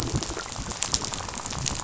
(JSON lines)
{"label": "biophony, rattle", "recorder": "SoundTrap 500"}